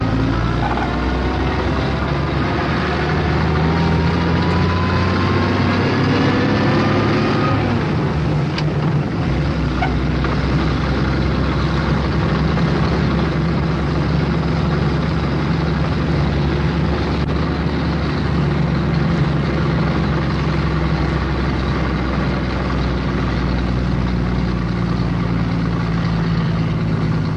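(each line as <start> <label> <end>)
0.0 A heavy truck engine runs with consistent acceleration and periodic gear shifts, producing a deep, mechanical hum. 27.4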